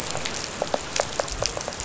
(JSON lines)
{"label": "biophony, rattle", "recorder": "SoundTrap 500"}